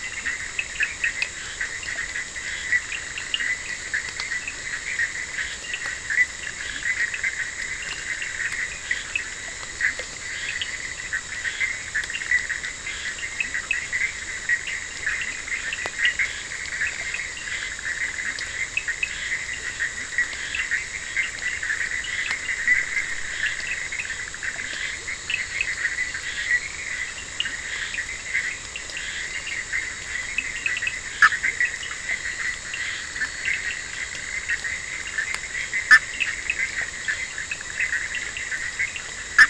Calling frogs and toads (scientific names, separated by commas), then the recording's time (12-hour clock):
Sphaenorhynchus surdus, Boana bischoffi, Scinax perereca, Elachistocleis bicolor
1:15am